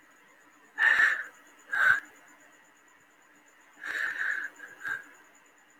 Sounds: Sigh